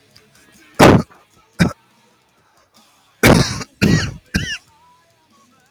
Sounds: Cough